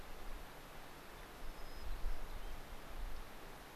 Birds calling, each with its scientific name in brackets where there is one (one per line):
American Pipit (Anthus rubescens)
White-crowned Sparrow (Zonotrichia leucophrys)